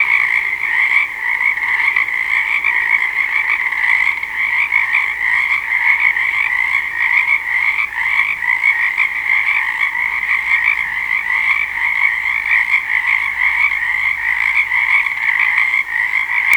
Is there only one frog making noise?
no